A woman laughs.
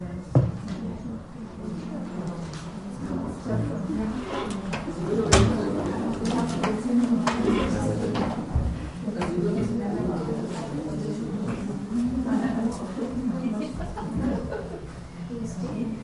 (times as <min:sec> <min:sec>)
0:13.4 0:14.5